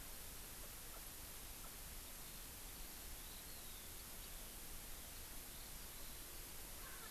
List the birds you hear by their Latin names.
Alauda arvensis